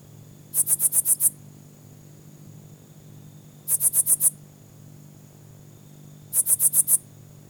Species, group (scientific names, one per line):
Phyllomimus inversus
Orthoptera